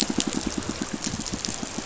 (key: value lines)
label: biophony, pulse
recorder: SoundTrap 500